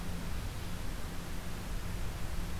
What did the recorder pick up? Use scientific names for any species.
forest ambience